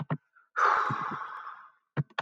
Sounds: Sigh